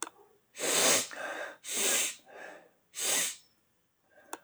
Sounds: Sniff